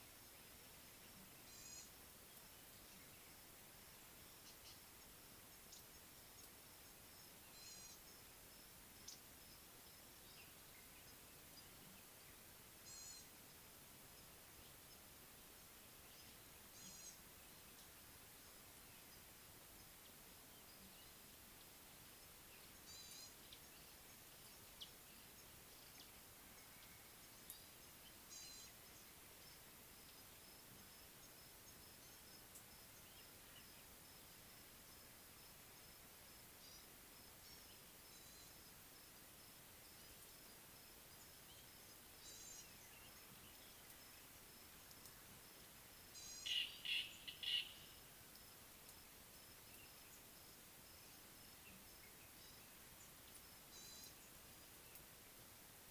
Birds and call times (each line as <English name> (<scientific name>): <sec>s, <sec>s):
Gray-backed Camaroptera (Camaroptera brevicaudata): 1.6s, 16.8s, 28.5s, 42.3s, 46.3s, 54.0s
Red-faced Crombec (Sylvietta whytii): 9.1s
Slate-colored Boubou (Laniarius funebris): 47.0s